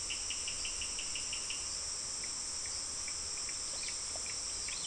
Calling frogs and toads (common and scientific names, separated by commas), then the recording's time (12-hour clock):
Cochran's lime tree frog (Sphaenorhynchus surdus)
6:15pm